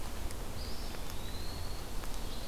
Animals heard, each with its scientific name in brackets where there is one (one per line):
Red-eyed Vireo (Vireo olivaceus)
Eastern Wood-Pewee (Contopus virens)